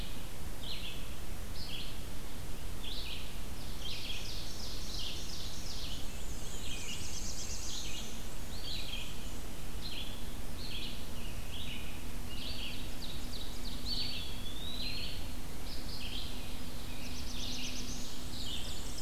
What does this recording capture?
Red-eyed Vireo, Ovenbird, Black-and-white Warbler, Black-throated Blue Warbler, Eastern Wood-Pewee